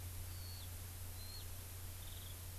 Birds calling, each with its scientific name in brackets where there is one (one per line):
Eurasian Skylark (Alauda arvensis)